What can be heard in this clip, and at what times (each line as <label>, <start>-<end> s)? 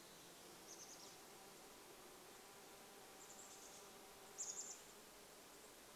Chestnut-backed Chickadee call, 0-6 s
insect buzz, 0-6 s